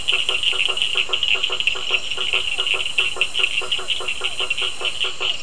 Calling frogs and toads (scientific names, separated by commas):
Boana faber, Physalaemus cuvieri, Sphaenorhynchus surdus